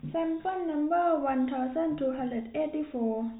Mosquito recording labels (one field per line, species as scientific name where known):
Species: no mosquito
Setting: cup